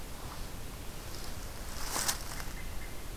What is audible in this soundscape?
American Robin